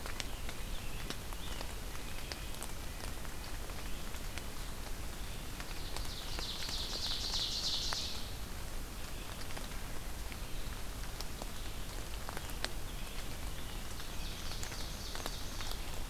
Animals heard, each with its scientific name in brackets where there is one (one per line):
Red-breasted Nuthatch (Sitta canadensis)
Red-eyed Vireo (Vireo olivaceus)
Ovenbird (Seiurus aurocapilla)
Scarlet Tanager (Piranga olivacea)